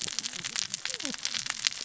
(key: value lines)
label: biophony, cascading saw
recorder: SoundTrap 600 or HydroMoth